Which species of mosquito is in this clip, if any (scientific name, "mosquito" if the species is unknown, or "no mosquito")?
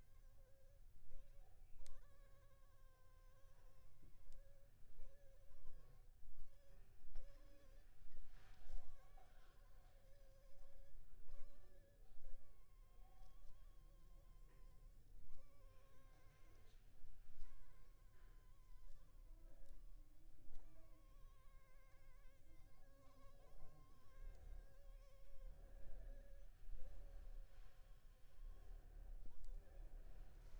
Anopheles funestus s.s.